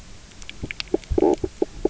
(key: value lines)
label: biophony, knock croak
recorder: SoundTrap 300